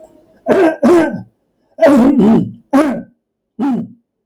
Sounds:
Throat clearing